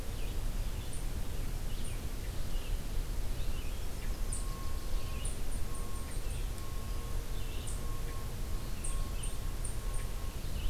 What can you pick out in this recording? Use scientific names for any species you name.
Vireo olivaceus, Leiothlypis ruficapilla